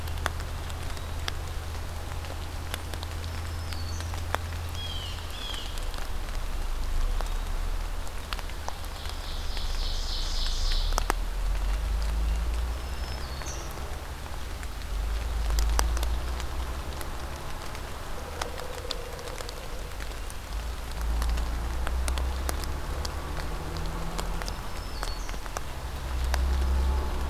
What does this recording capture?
Black-throated Green Warbler, Blue Jay, Ovenbird